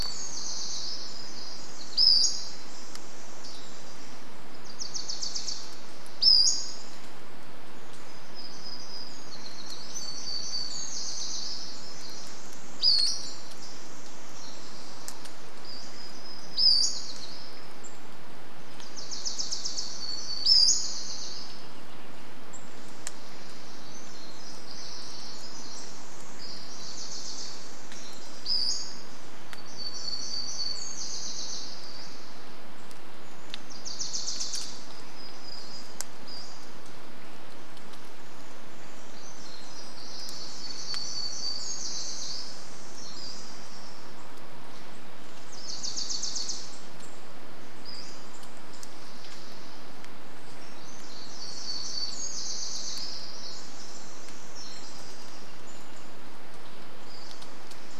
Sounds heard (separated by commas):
Pacific-slope Flycatcher call, unidentified sound, Pacific Wren song, Dusky Flycatcher song, Wilson's Warbler song, warbler song